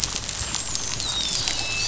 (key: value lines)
label: biophony, dolphin
recorder: SoundTrap 500